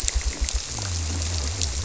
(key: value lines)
label: biophony
recorder: SoundTrap 300